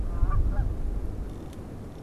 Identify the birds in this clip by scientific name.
Branta canadensis